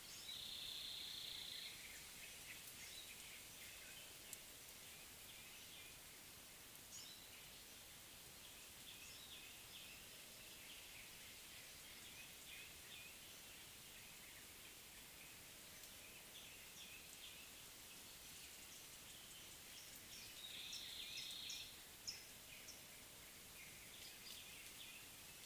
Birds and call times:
Chestnut-throated Apalis (Apalis porphyrolaema): 1.1s, 21.1s

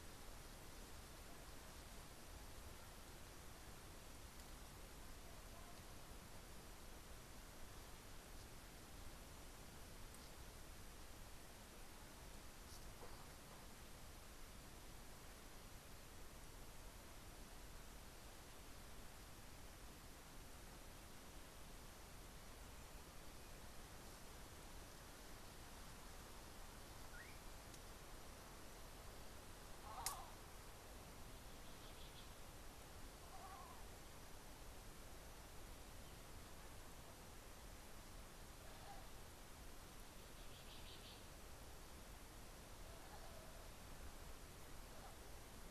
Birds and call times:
Cinnamon Bracken-Warbler (Bradypterus cinnamomeus): 40.9s

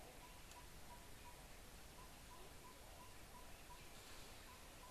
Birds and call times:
Yellow-rumped Tinkerbird (Pogoniulus bilineatus): 3.1s

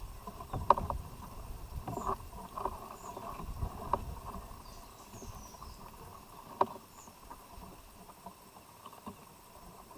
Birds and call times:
Baglafecht Weaver (Ploceus baglafecht): 5.0s

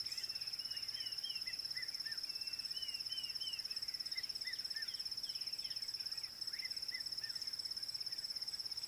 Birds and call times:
Dideric Cuckoo (Chrysococcyx caprius): 1.1s, 3.2s
Red-chested Cuckoo (Cuculus solitarius): 1.9s

